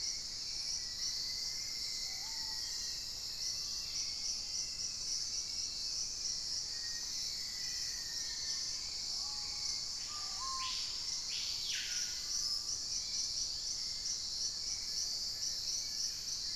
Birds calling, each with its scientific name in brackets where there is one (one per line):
Cinereous Mourner (Laniocera hypopyrra)
Fasciated Antshrike (Cymbilaimus lineatus)
Plumbeous Pigeon (Patagioenas plumbea)
Black-faced Antthrush (Formicarius analis)
Hauxwell's Thrush (Turdus hauxwelli)
Screaming Piha (Lipaugus vociferans)
Dusky-capped Greenlet (Pachysylvia hypoxantha)
unidentified bird